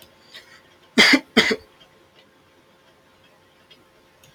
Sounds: Cough